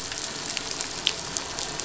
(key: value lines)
label: anthrophony, boat engine
recorder: SoundTrap 500